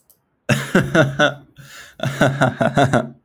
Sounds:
Laughter